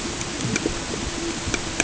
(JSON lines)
{"label": "ambient", "recorder": "HydroMoth"}